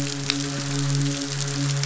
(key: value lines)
label: biophony, midshipman
recorder: SoundTrap 500